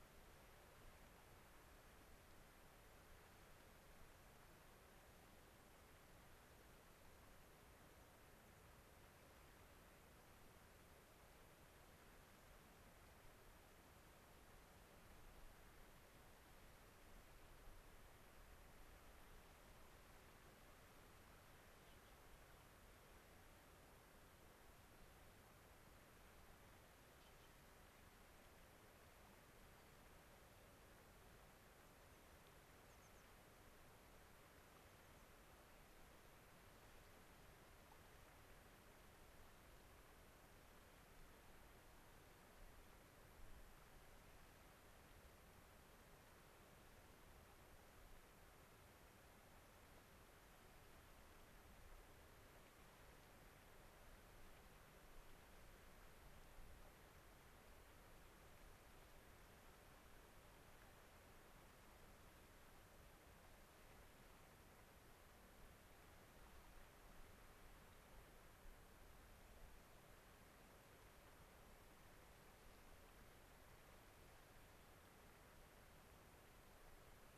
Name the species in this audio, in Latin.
Anthus rubescens